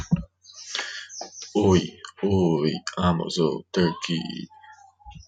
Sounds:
Laughter